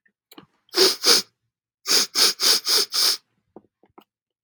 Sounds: Sniff